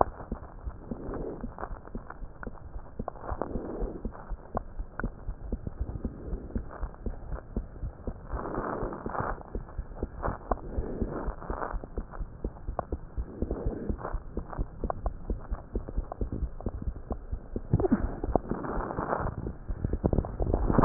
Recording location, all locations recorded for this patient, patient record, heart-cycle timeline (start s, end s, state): aortic valve (AV)
aortic valve (AV)+pulmonary valve (PV)+tricuspid valve (TV)+mitral valve (MV)
#Age: Child
#Sex: Male
#Height: 90.0 cm
#Weight: 13.9 kg
#Pregnancy status: False
#Murmur: Absent
#Murmur locations: nan
#Most audible location: nan
#Systolic murmur timing: nan
#Systolic murmur shape: nan
#Systolic murmur grading: nan
#Systolic murmur pitch: nan
#Systolic murmur quality: nan
#Diastolic murmur timing: nan
#Diastolic murmur shape: nan
#Diastolic murmur grading: nan
#Diastolic murmur pitch: nan
#Diastolic murmur quality: nan
#Outcome: Normal
#Campaign: 2015 screening campaign
0.00	6.12	unannotated
6.12	6.26	diastole
6.26	6.40	S1
6.40	6.54	systole
6.54	6.64	S2
6.64	6.80	diastole
6.80	6.90	S1
6.90	7.02	systole
7.02	7.14	S2
7.14	7.30	diastole
7.30	7.40	S1
7.40	7.52	systole
7.52	7.66	S2
7.66	7.84	diastole
7.84	7.92	S1
7.92	8.06	systole
8.06	8.14	S2
8.14	8.32	diastole
8.32	8.42	S1
8.42	8.54	systole
8.54	8.64	S2
8.64	8.80	diastole
8.80	8.92	S1
8.92	9.04	systole
9.04	9.12	S2
9.12	9.28	diastole
9.28	9.40	S1
9.40	9.54	systole
9.54	9.64	S2
9.64	9.76	diastole
9.76	9.86	S1
9.86	9.98	systole
9.98	10.10	S2
10.10	10.24	diastole
10.24	10.36	S1
10.36	10.50	systole
10.50	10.60	S2
10.60	10.72	diastole
10.72	10.86	S1
10.86	11.00	systole
11.00	11.14	S2
11.14	11.26	diastole
11.26	11.36	S1
11.36	11.48	systole
11.48	11.56	S2
11.56	11.72	diastole
11.72	11.84	S1
11.84	11.96	systole
11.96	12.04	S2
12.04	12.18	diastole
12.18	12.28	S1
12.28	12.40	systole
12.40	12.52	S2
12.52	12.66	diastole
12.66	12.76	S1
12.76	12.88	systole
12.88	13.02	S2
13.02	13.18	diastole
13.18	13.28	S1
13.28	13.50	systole
13.50	13.64	S2
13.64	13.84	diastole
13.84	20.85	unannotated